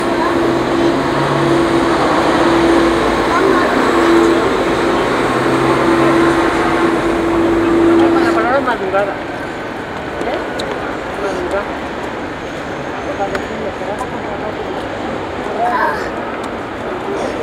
Are people talking?
yes